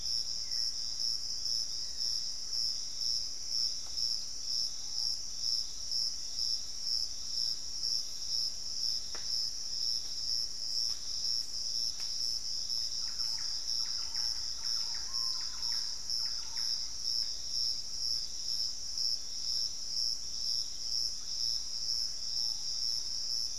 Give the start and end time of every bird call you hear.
0.0s-2.3s: Hauxwell's Thrush (Turdus hauxwelli)
0.0s-2.4s: Piratic Flycatcher (Legatus leucophaius)
4.7s-5.2s: Screaming Piha (Lipaugus vociferans)
12.6s-17.3s: Thrush-like Wren (Campylorhynchus turdinus)
13.0s-14.8s: Black-faced Antthrush (Formicarius analis)
16.5s-23.6s: Piratic Flycatcher (Legatus leucophaius)
22.2s-22.7s: Screaming Piha (Lipaugus vociferans)

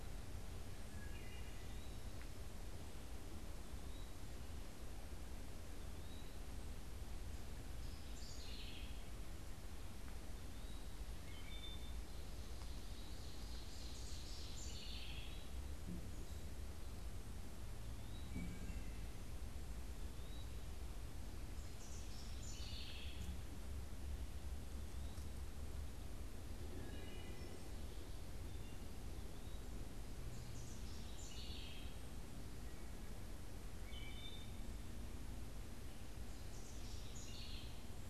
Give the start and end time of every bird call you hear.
0.0s-2.2s: Eastern Wood-Pewee (Contopus virens)
0.8s-2.2s: Wood Thrush (Hylocichla mustelina)
3.9s-18.7s: Eastern Wood-Pewee (Contopus virens)
7.9s-9.2s: House Wren (Troglodytes aedon)
10.9s-12.3s: Wood Thrush (Hylocichla mustelina)
12.4s-14.8s: Ovenbird (Seiurus aurocapilla)
13.9s-15.6s: House Wren (Troglodytes aedon)
18.2s-19.2s: Wood Thrush (Hylocichla mustelina)
20.1s-20.6s: Eastern Wood-Pewee (Contopus virens)
21.5s-23.5s: House Wren (Troglodytes aedon)
24.5s-25.4s: Eastern Wood-Pewee (Contopus virens)
26.6s-27.7s: Wood Thrush (Hylocichla mustelina)
29.2s-29.9s: Eastern Wood-Pewee (Contopus virens)
30.3s-32.2s: House Wren (Troglodytes aedon)
33.5s-34.8s: Wood Thrush (Hylocichla mustelina)
36.3s-38.0s: House Wren (Troglodytes aedon)

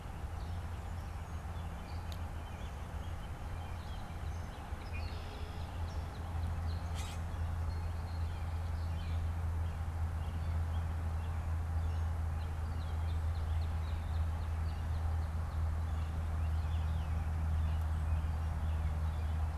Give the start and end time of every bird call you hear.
4.1s-6.9s: Northern Cardinal (Cardinalis cardinalis)
6.9s-7.3s: Common Grackle (Quiscalus quiscula)
7.9s-9.5s: Red-winged Blackbird (Agelaius phoeniceus)
12.2s-16.2s: Northern Cardinal (Cardinalis cardinalis)
16.3s-19.5s: American Robin (Turdus migratorius)

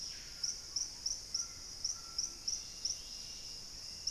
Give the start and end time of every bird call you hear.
0.0s-0.7s: Screaming Piha (Lipaugus vociferans)
0.0s-3.7s: Dusky-capped Greenlet (Pachysylvia hypoxantha)
0.0s-4.1s: Hauxwell's Thrush (Turdus hauxwelli)
0.0s-4.1s: White-throated Toucan (Ramphastos tucanus)

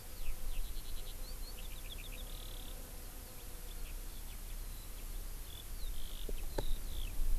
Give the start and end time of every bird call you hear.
0.0s-7.4s: Eurasian Skylark (Alauda arvensis)

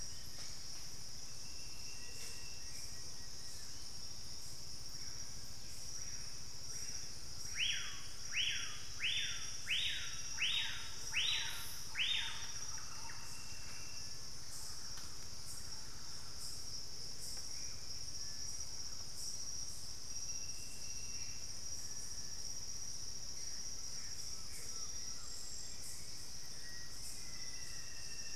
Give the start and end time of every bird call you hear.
0.0s-0.9s: White-bellied Tody-Tyrant (Hemitriccus griseipectus)
0.0s-3.9s: Plain-winged Antshrike (Thamnophilus schistaceus)
0.0s-4.0s: Bluish-fronted Jacamar (Galbula cyanescens)
0.2s-0.6s: Black-faced Antthrush (Formicarius analis)
2.0s-2.4s: Amazonian Motmot (Momotus momota)
4.8s-13.1s: Screaming Piha (Lipaugus vociferans)
10.5s-16.9s: Thrush-like Wren (Campylorhynchus turdinus)
17.4s-21.6s: Black-faced Antthrush (Formicarius analis)
18.1s-18.5s: Cinereous Tinamou (Crypturellus cinereus)
23.1s-23.9s: White-bellied Tody-Tyrant (Hemitriccus griseipectus)
23.6s-25.7s: Collared Trogon (Trogon collaris)
24.6s-27.1s: Plain-winged Antshrike (Thamnophilus schistaceus)
24.9s-28.4s: Hauxwell's Thrush (Turdus hauxwelli)
26.6s-28.4s: Black-faced Antthrush (Formicarius analis)

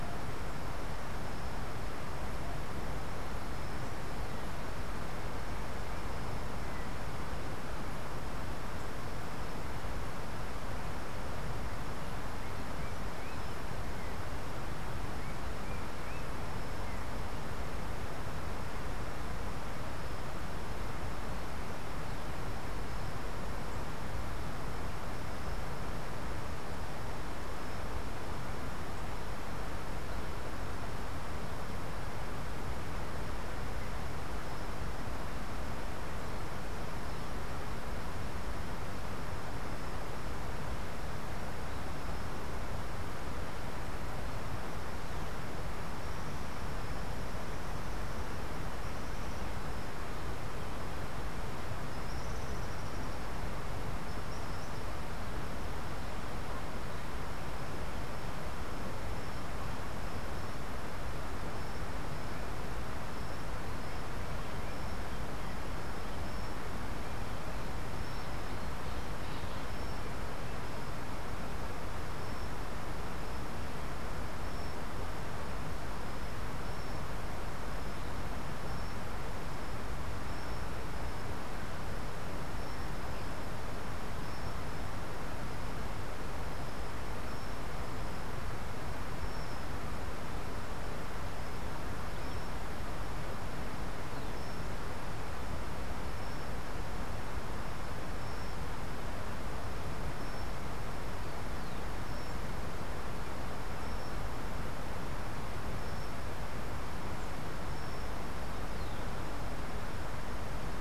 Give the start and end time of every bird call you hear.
47.2s-55.0s: Tropical Kingbird (Tyrannus melancholicus)

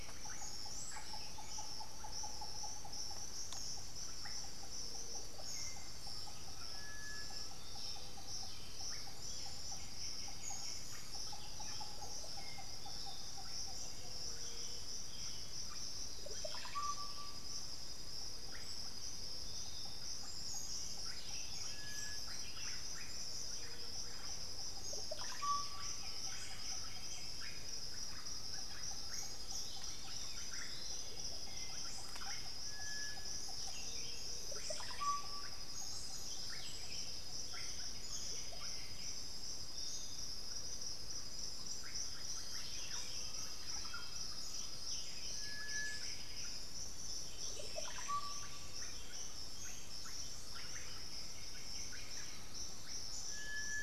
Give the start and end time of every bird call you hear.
0.0s-0.5s: White-winged Becard (Pachyramphus polychopterus)
0.0s-53.8s: Russet-backed Oropendola (Psarocolius angustifrons)
0.6s-1.9s: Buff-throated Saltator (Saltator maximus)
5.4s-12.8s: unidentified bird
5.9s-7.9s: Undulated Tinamou (Crypturellus undulatus)
5.9s-12.0s: Buff-throated Saltator (Saltator maximus)
7.5s-9.8s: Black-billed Thrush (Turdus ignobilis)
9.4s-11.3s: White-winged Becard (Pachyramphus polychopterus)
12.7s-53.8s: Piratic Flycatcher (Legatus leucophaius)
13.9s-16.3s: Black-billed Thrush (Turdus ignobilis)
15.9s-17.3s: Black-throated Antbird (Myrmophylax atrothorax)
20.8s-53.8s: Buff-throated Saltator (Saltator maximus)
25.6s-27.6s: White-winged Becard (Pachyramphus polychopterus)
30.0s-32.2s: Chestnut-winged Foliage-gleaner (Dendroma erythroptera)
30.2s-33.3s: Black-billed Thrush (Turdus ignobilis)
37.5s-39.4s: White-winged Becard (Pachyramphus polychopterus)
43.0s-45.1s: Undulated Tinamou (Crypturellus undulatus)
45.0s-52.8s: White-winged Becard (Pachyramphus polychopterus)
51.7s-53.4s: Undulated Tinamou (Crypturellus undulatus)
53.2s-53.8s: Black-billed Thrush (Turdus ignobilis)

